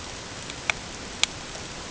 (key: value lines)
label: ambient
recorder: HydroMoth